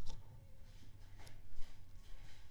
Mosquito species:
Aedes aegypti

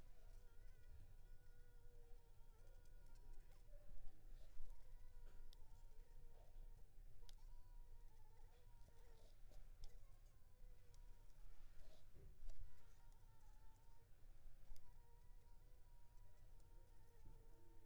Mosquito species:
Anopheles funestus s.s.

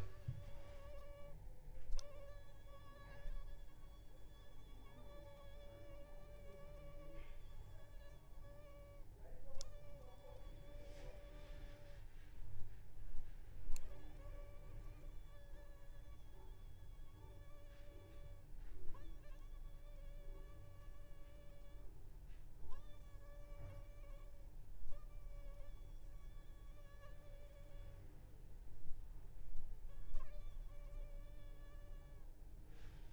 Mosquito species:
Anopheles arabiensis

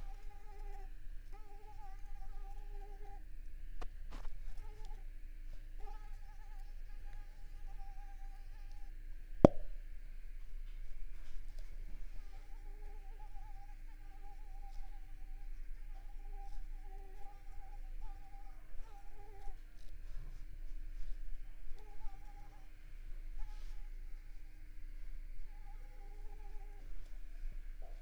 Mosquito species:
Mansonia africanus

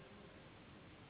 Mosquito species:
Anopheles gambiae s.s.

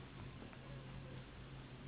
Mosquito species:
Anopheles gambiae s.s.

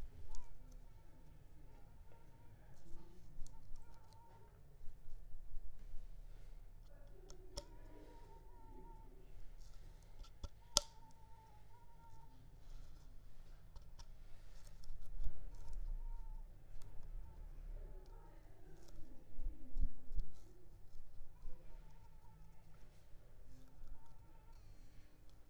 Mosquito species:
Culex pipiens complex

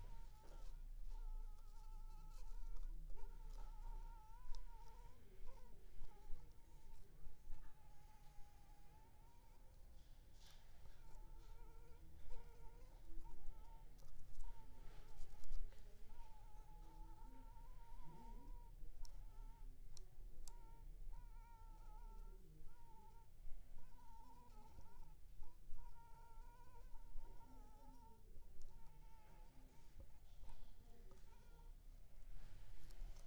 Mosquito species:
Anopheles funestus s.s.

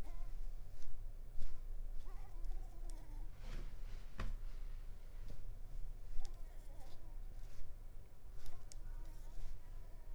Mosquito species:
Anopheles ziemanni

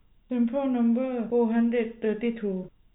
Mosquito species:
no mosquito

